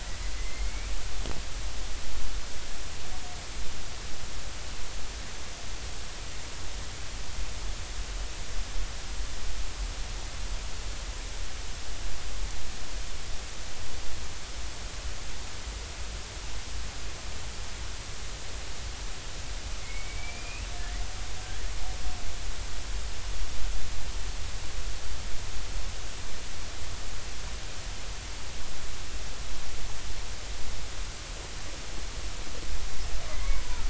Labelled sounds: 0.0	0.9	killer whale, Bigg's (transient), 1.9 to 2.4 kHz
19.8	21.0	killer whale, Bigg's (transient), 1.7 to 2.8 kHz
33.3	33.6	killer whale, Bigg's (transient), 2.0 to 2.3 kHz

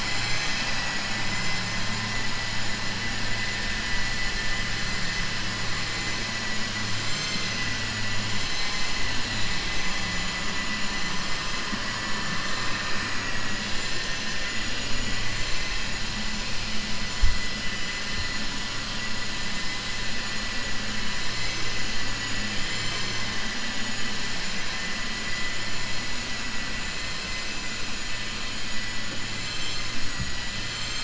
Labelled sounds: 11.9	14.4	vessel noise, 0.81 to 7.2 kHz
25.7	26.6	vessel noise, 6.0 to 7.9 kHz

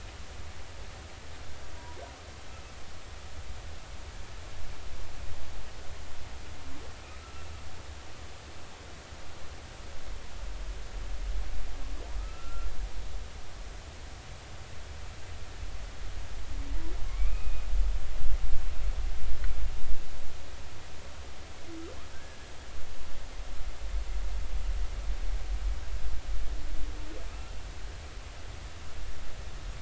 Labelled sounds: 12.2	12.7	humpback whale, 1.2 to 1.4 kHz
17.1	17.6	humpback whale, 2.1 to 2.6 kHz
22.1	22.4	humpback whale, 1.5 to 1.8 kHz

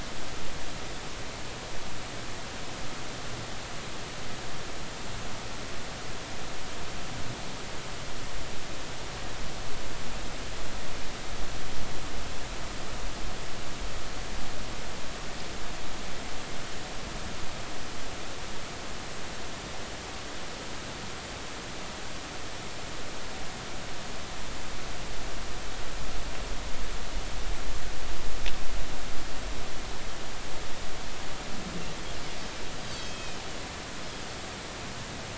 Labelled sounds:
32.9	33.4	Pacific white-sided dolphin, 2.4 to 5.2 kHz

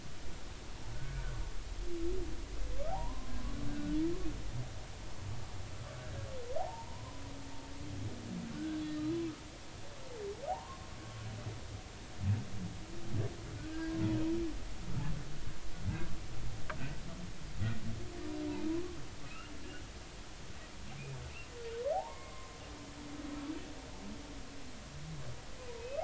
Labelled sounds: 0.9	1.2	humpback whale, 1.4 to 1.5 kHz
2.9	4.0	humpback whale, 0.80 to 1.6 kHz
5.9	7.1	humpback whale, 0.80 to 1.7 kHz
8.5	9.1	humpback whale, 1.4 to 4.1 kHz
10.5	10.8	humpback whale, 0.80 to 1.2 kHz
13.7	14.0	humpback whale, 1.5 to 1.7 kHz
18.7	19.6	humpback whale, 0.93 to 2.9 kHz
21.9	22.5	humpback whale, 0.80 to 2.2 kHz
25.8	26.0	humpback whale, 2.5 to 2.7 kHz

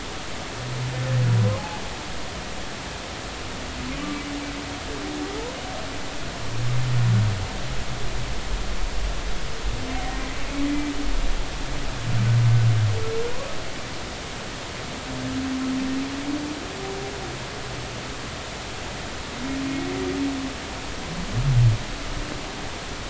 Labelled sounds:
3.9	4.2	humpback whale, 1.1 to 1.2 kHz

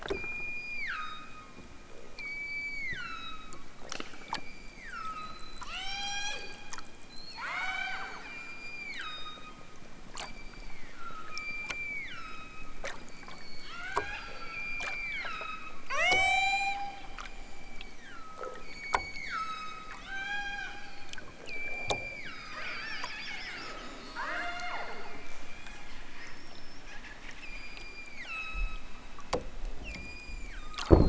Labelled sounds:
0.0	1.6	killer whale, southern Alaska resident, 0.96 to 8.0 kHz
2.1	3.7	killer whale, southern Alaska resident, 0.96 to 8.0 kHz
4.0	6.5	killer whale, southern Alaska resident, 0.37 to 8.0 kHz
7.0	9.7	killer whale, southern Alaska resident, 0.37 to 8.0 kHz
10.2	20.8	killer whale, southern Alaska resident, 0.28 to 8.0 kHz
21.4	24.9	killer whale, southern Alaska resident, 0.23 to 7.4 kHz
27.3	29.0	killer whale, southern Alaska resident, 0.92 to 8.0 kHz
29.8	30.9	killer whale, southern Alaska resident, 0.92 to 7.8 kHz

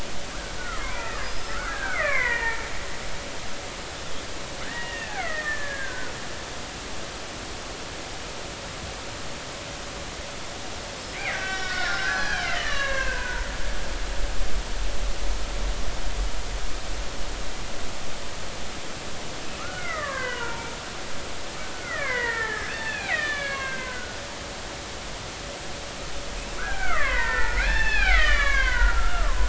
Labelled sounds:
0.6	2.6	killer whale, Bigg's (transient), 0.86 to 5.2 kHz
4.6	6.2	killer whale, Bigg's (transient), 1.2 to 2.9 kHz
11.1	13.5	killer whale, Bigg's (transient), 0.90 to 6.0 kHz
19.6	20.7	killer whale, Bigg's (transient), 0.86 to 3.1 kHz
21.7	24.2	killer whale, Bigg's (transient), 0.86 to 4.1 kHz
26.6	29.4	killer whale, Bigg's (transient), 0.80 to 5.3 kHz

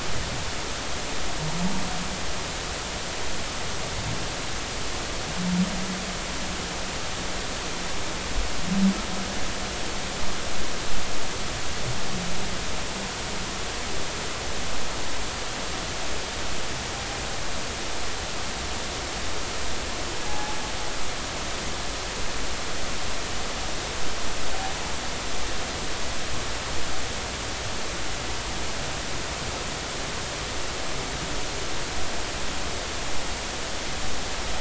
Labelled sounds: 20.3	20.6	humpback whale, 0.80 to 0.90 kHz

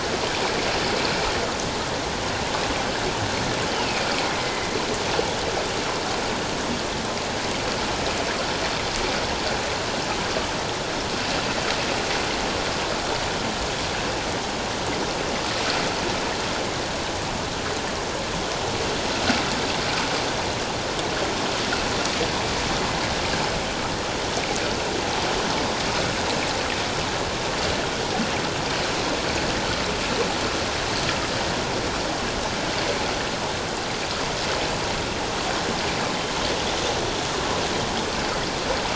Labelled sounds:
3.7	4.7	killer whale, northern resident, A clan, AA subclan, 2.0 to 3.2 kHz

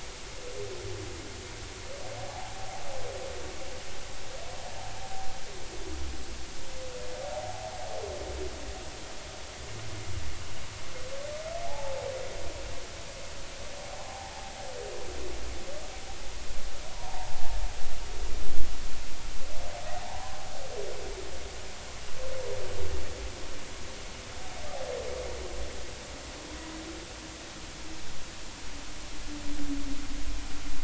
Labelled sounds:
2.3	2.8	humpback whale, 0.80 to 0.93 kHz
11.7	12.0	humpback whale, 0.80 to 0.96 kHz
13.8	14.5	humpback whale, 0.80 to 0.93 kHz
16.9	17.4	humpback whale, 0.80 to 1.1 kHz
20.0	20.3	humpback whale, 0.80 to 1.1 kHz

